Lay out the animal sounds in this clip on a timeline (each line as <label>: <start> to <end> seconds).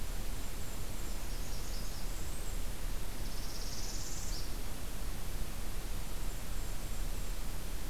Golden-crowned Kinglet (Regulus satrapa): 0.0 to 1.3 seconds
Blackburnian Warbler (Setophaga fusca): 1.0 to 2.7 seconds
Northern Parula (Setophaga americana): 3.1 to 4.6 seconds
Golden-crowned Kinglet (Regulus satrapa): 5.9 to 7.6 seconds